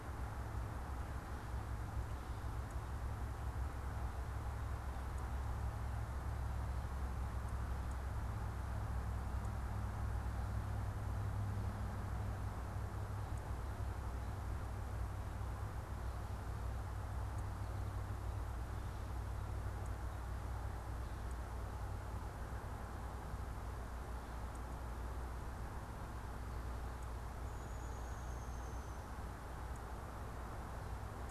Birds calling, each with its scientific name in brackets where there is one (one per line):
Downy Woodpecker (Dryobates pubescens)